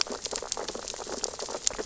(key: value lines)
label: biophony, sea urchins (Echinidae)
recorder: SoundTrap 600 or HydroMoth